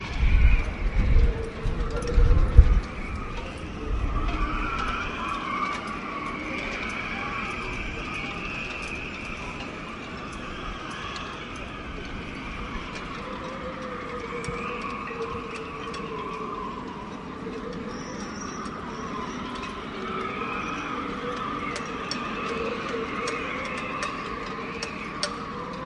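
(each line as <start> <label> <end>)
0.0 Soft wind is blowing. 4.6
0.0 Many seagulls squawk at a port by the sea. 8.7
0.0 Wind howling eerily. 25.8
0.0 The masts of sailboats clanging. 25.8
3.2 Metal clangs softly and repeatedly as it is moved around. 25.8
3.7 Many people are talking in muffled voices in the distance. 11.0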